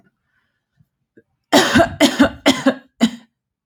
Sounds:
Cough